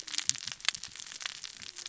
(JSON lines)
{"label": "biophony, cascading saw", "recorder": "SoundTrap 600 or HydroMoth"}